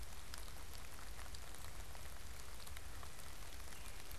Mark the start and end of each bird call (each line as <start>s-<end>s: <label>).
0.0s-4.2s: Red-bellied Woodpecker (Melanerpes carolinus)
0.0s-4.2s: Wood Thrush (Hylocichla mustelina)